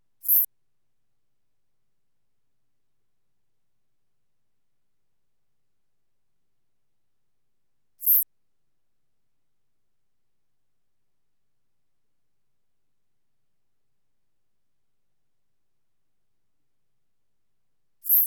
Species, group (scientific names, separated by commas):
Eupholidoptera latens, Orthoptera